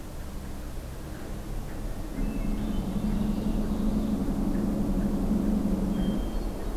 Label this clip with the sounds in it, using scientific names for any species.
Catharus guttatus, Agelaius phoeniceus, Seiurus aurocapilla